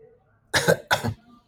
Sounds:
Cough